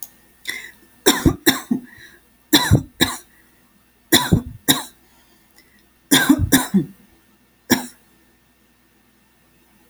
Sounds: Cough